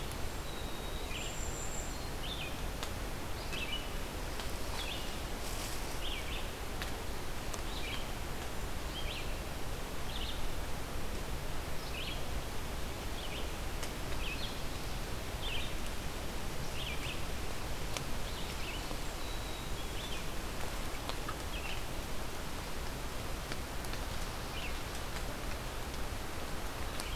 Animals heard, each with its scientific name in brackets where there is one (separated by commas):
Red-eyed Vireo (Vireo olivaceus), Song Sparrow (Melospiza melodia), Golden-crowned Kinglet (Regulus satrapa), Black-throated Green Warbler (Setophaga virens)